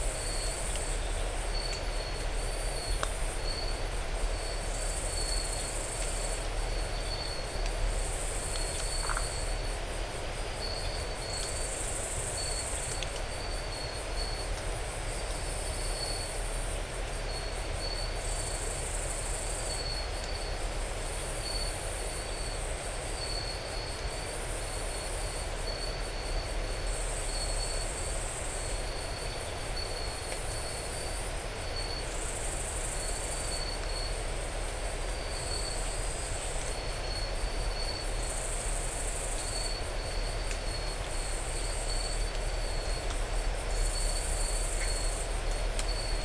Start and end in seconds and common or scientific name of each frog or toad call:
8.9	9.3	Phyllomedusa distincta